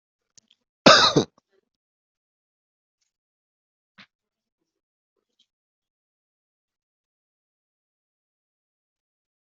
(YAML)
expert_labels:
- quality: good
  cough_type: dry
  dyspnea: false
  wheezing: false
  stridor: false
  choking: false
  congestion: false
  nothing: true
  diagnosis: healthy cough
  severity: pseudocough/healthy cough